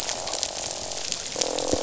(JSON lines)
{"label": "biophony, croak", "recorder": "SoundTrap 500"}